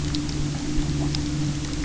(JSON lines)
{"label": "anthrophony, boat engine", "recorder": "SoundTrap 300"}